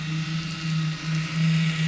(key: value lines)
label: anthrophony, boat engine
recorder: SoundTrap 500